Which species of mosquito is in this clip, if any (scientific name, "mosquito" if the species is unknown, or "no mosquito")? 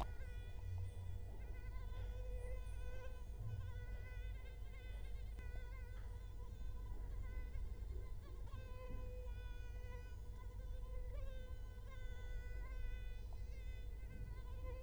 Culex quinquefasciatus